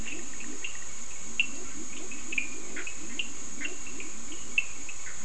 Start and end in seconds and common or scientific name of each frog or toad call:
0.0	5.2	Leptodactylus latrans
0.0	5.2	Cochran's lime tree frog
2.6	3.1	Bischoff's tree frog